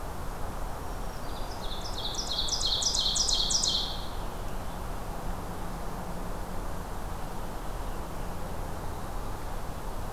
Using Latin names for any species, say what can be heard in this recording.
Setophaga virens, Seiurus aurocapilla